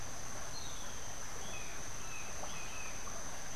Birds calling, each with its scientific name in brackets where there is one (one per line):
Brown Jay (Psilorhinus morio)
Streak-headed Woodcreeper (Lepidocolaptes souleyetii)